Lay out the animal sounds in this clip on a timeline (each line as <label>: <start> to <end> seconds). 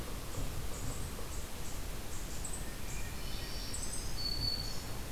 Yellow-bellied Sapsucker (Sphyrapicus varius): 0.0 to 1.2 seconds
Eastern Chipmunk (Tamias striatus): 0.0 to 5.1 seconds
Hermit Thrush (Catharus guttatus): 2.4 to 3.9 seconds
Black-throated Green Warbler (Setophaga virens): 3.0 to 5.1 seconds